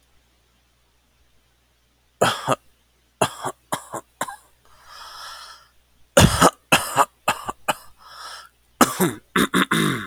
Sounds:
Cough